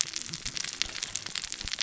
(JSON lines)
{"label": "biophony, cascading saw", "recorder": "SoundTrap 600 or HydroMoth"}